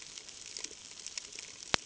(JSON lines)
{"label": "ambient", "recorder": "HydroMoth"}